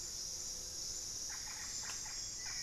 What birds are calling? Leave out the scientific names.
Hauxwell's Thrush, Russet-backed Oropendola